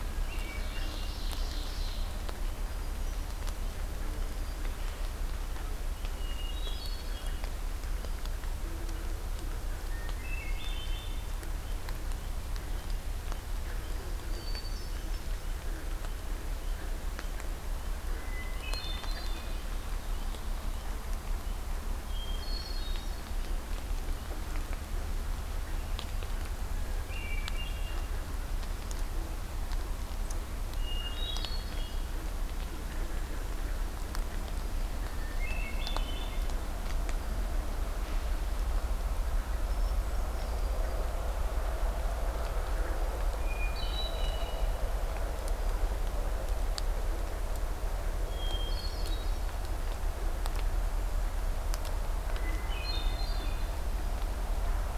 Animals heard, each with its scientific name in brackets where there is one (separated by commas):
Ovenbird (Seiurus aurocapilla), Hermit Thrush (Catharus guttatus)